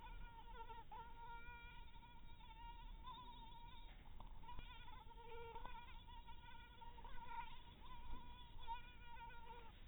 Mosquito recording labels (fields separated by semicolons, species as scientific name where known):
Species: mosquito; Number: one; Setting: cup